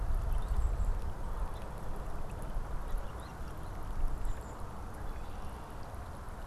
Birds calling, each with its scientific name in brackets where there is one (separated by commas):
Song Sparrow (Melospiza melodia), Golden-crowned Kinglet (Regulus satrapa), American Robin (Turdus migratorius), Red-winged Blackbird (Agelaius phoeniceus)